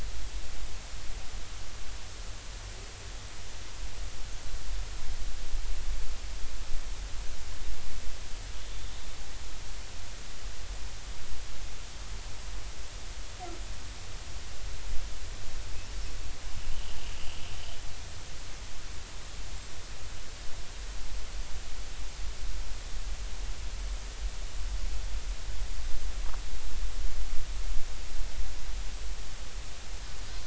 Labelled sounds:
16.7	17.0	killer whale, Bigg's (transient), 2.8 to 3.2 kHz

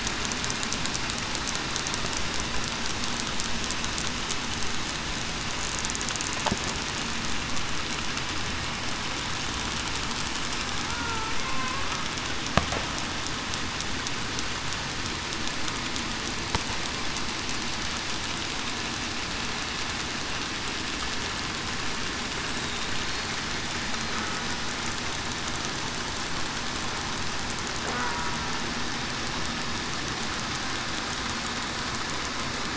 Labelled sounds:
10.9	11.9	killer whale, southern resident, 1.0 to 1.5 kHz

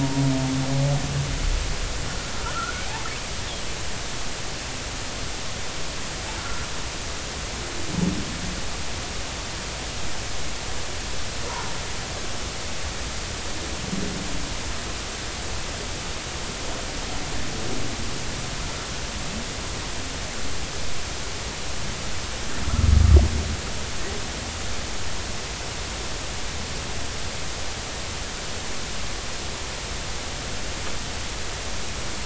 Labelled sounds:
2.4	3.0	humpback whale, 1.2 to 2.7 kHz
6.4	6.7	humpback whale, 1.3 to 1.5 kHz

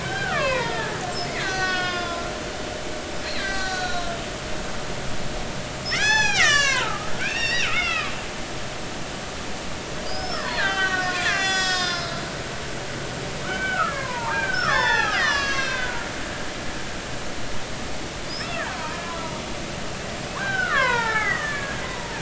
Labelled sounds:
0.0	1.0	killer whale, Bigg's (transient), 0.86 to 3.4 kHz
1.3	2.3	killer whale, Bigg's (transient), 0.96 to 6.1 kHz
3.3	4.1	killer whale, Bigg's (transient), 1.4 to 7.8 kHz
5.9	8.1	killer whale, Bigg's (transient), 0.80 to 7.7 kHz
10.0	12.3	killer whale, Bigg's (transient), 0.90 to 7.8 kHz
13.4	16.1	killer whale, Bigg's (transient), 0.80 to 6.3 kHz
18.2	19.0	killer whale, Bigg's (transient), 0.86 to 5.4 kHz
20.4	22.2	killer whale, Bigg's (transient), 0.80 to 4.2 kHz

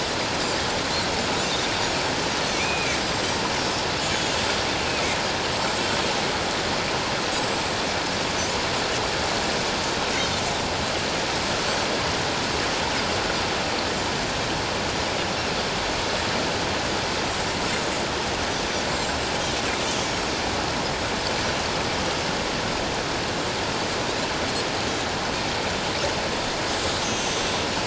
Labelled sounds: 2.5	3.4	Pacific white-sided dolphin, 2.1 to 7.8 kHz
4.0	4.3	Pacific white-sided dolphin, 6.6 to 7.1 kHz
5.5	5.8	Pacific white-sided dolphin, 7.5 to 7.6 kHz
7.4	7.7	Pacific white-sided dolphin, 7.6 to 7.8 kHz
18.9	19.3	Pacific white-sided dolphin, 7.4 to 7.7 kHz
27.0	27.4	Pacific white-sided dolphin, 5.6 to 6.7 kHz

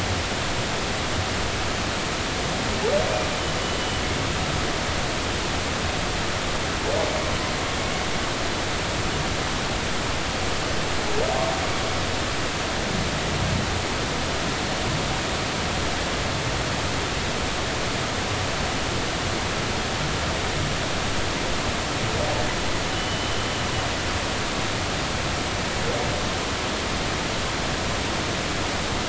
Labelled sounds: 22.9	23.4	humpback whale, 2.9 to 3.1 kHz

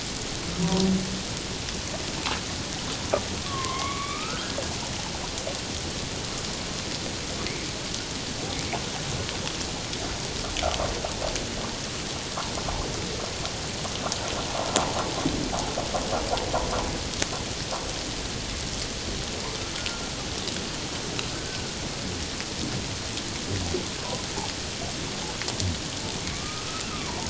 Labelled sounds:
0.6	0.9	humpback whale, 0.91 to 1.1 kHz
3.4	4.6	humpback whale, 1.0 to 2.7 kHz
19.8	20.1	humpback whale, 1.3 to 1.5 kHz
21.3	21.6	humpback whale, 1.5 to 1.6 kHz
26.3	27.2	humpback whale, 0.84 to 1.5 kHz

